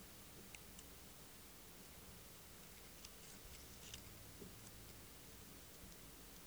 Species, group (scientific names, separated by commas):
Leptophyes boscii, Orthoptera